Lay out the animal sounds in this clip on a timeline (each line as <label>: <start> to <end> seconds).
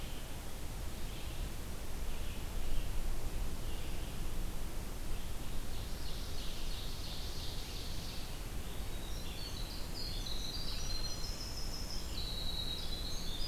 Red-eyed Vireo (Vireo olivaceus): 0.0 to 5.6 seconds
Ovenbird (Seiurus aurocapilla): 5.5 to 8.6 seconds
Red-eyed Vireo (Vireo olivaceus): 7.4 to 13.5 seconds
Winter Wren (Troglodytes hiemalis): 8.8 to 13.5 seconds